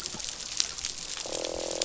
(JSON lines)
{"label": "biophony, croak", "recorder": "SoundTrap 500"}